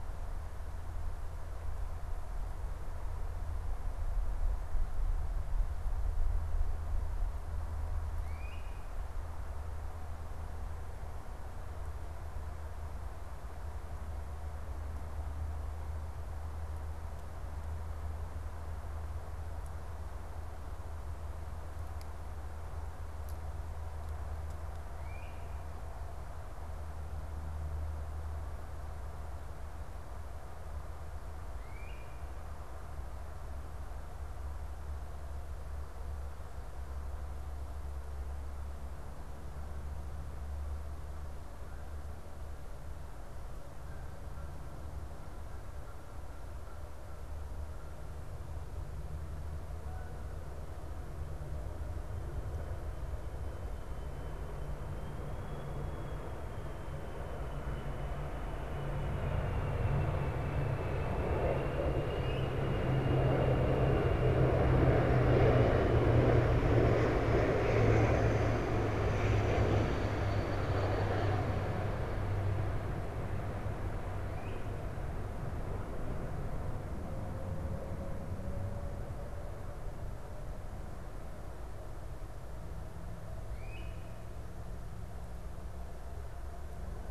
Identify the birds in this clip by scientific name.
Myiarchus crinitus, Branta canadensis